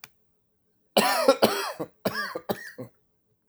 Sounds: Cough